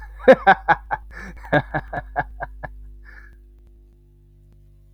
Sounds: Laughter